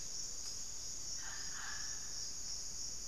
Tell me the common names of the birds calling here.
Mealy Parrot